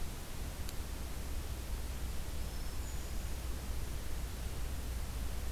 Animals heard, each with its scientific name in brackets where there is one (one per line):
Hermit Thrush (Catharus guttatus)